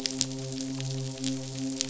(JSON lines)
{"label": "biophony, midshipman", "recorder": "SoundTrap 500"}